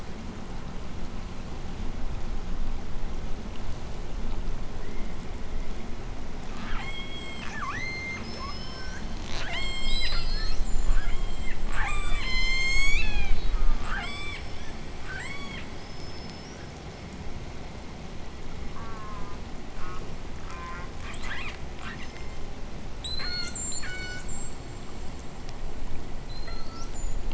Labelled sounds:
4.6	6.0	killer whale, southern resident, J pod, 1.6 to 2.5 kHz
6.2	16.9	killer whale, southern resident, J pod, 0.20 to 8.0 kHz
18.6	21.0	killer whale, southern resident, J pod, call S04, 0.57 to 3.1 kHz
21.0	24.9	killer whale, southern resident, J pod, 0.48 to 8.0 kHz
26.1	27.3	killer whale, southern resident, J pod, 0.91 to 8.0 kHz

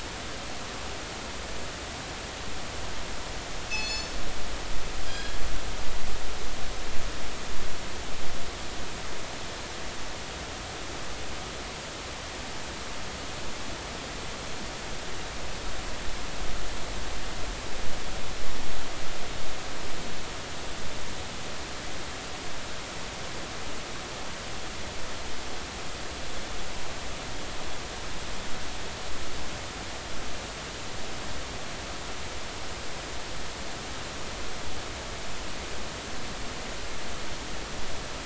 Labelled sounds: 3.7	4.2	killer whale, northern resident, G clan, call N24ii, 2.5 to 7.1 kHz
5.0	5.4	killer whale, northern resident, G clan, call N24ii, 1.6 to 3.4 kHz

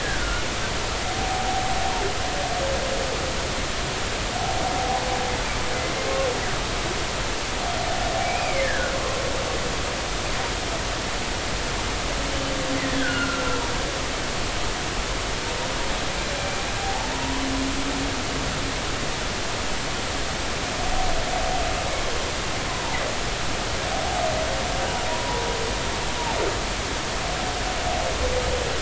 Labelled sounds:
0.0	0.5	humpback whale, 1.3 to 1.8 kHz
1.2	1.5	humpback whale, 0.80 to 0.86 kHz
4.8	5.0	humpback whale, 0.80 to 0.90 kHz
8.2	9.2	humpback whale, 0.99 to 2.5 kHz
12.9	13.5	humpback whale, 1.3 to 1.8 kHz
16.8	17.3	humpback whale, 0.80 to 1.0 kHz
25.1	25.4	humpback whale, 0.86 to 1.0 kHz

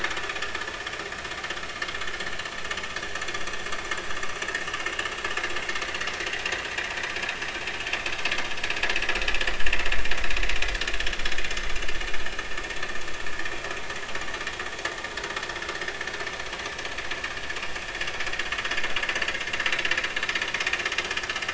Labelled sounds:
5.8	6.1	vessel noise, 1.9 to 2.0 kHz
17.0	17.2	vessel noise, 4.8 to 5.0 kHz

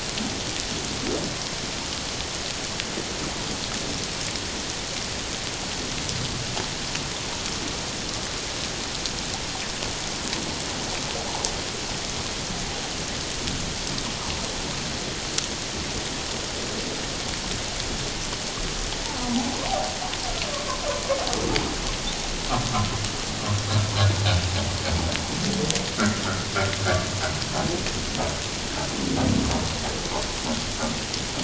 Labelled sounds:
25.9	26.2	humpback whale, 1.2 to 1.7 kHz

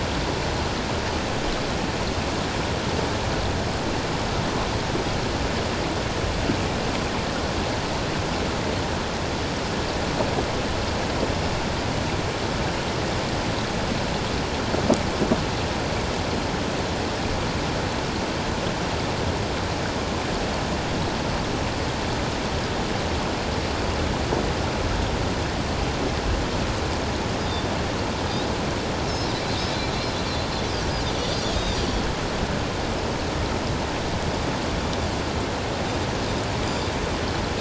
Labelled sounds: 27.4	27.7	Pacific white-sided dolphin, 3.5 to 5.0 kHz
29.1	29.3	Pacific white-sided dolphin, 5.1 to 5.4 kHz
31.5	31.8	Pacific white-sided dolphin, 6.0 to 6.3 kHz
36.6	36.9	Pacific white-sided dolphin, 4.7 to 4.8 kHz

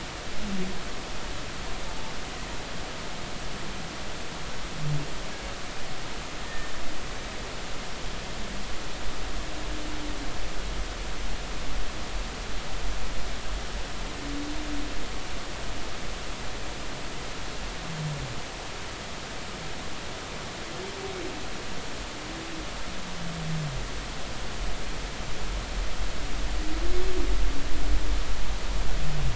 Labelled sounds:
1.9	2.1	humpback whale, 0.83 to 0.93 kHz
6.4	6.7	humpback whale, 1.8 to 1.9 kHz

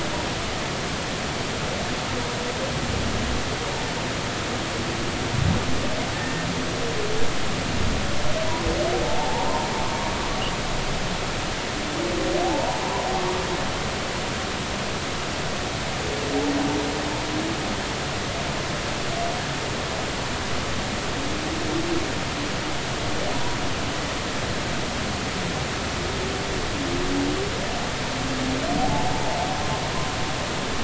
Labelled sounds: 6.1	6.5	humpback whale, 1.7 to 1.9 kHz
9.0	9.5	humpback whale, 0.80 to 0.99 kHz
12.4	13.1	humpback whale, 0.80 to 1.1 kHz
28.8	29.1	humpback whale, 0.80 to 0.93 kHz

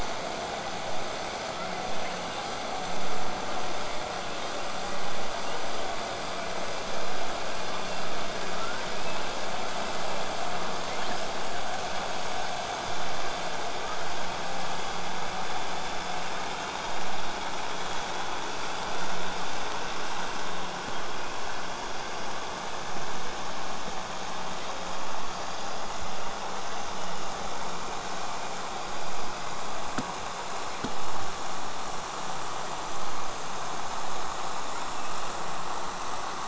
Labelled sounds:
10.8	11.3	killer whale, southern resident, 1.6 to 5.5 kHz
25.2	26.1	killer whale, southern resident, 4.4 to 5.2 kHz
26.6	27.2	killer whale, southern resident, 4.6 to 8.0 kHz
28.8	29.5	killer whale, southern resident, 4.6 to 5.2 kHz
34.6	35.3	killer whale, southern resident, 1.9 to 3.8 kHz

